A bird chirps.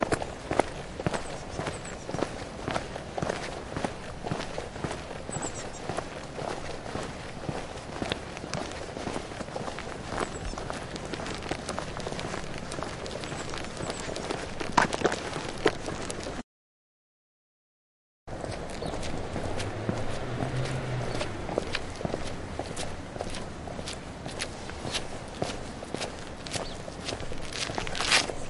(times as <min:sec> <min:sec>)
0:05.7 0:07.7, 0:09.9 0:11.2, 0:26.3 0:27.3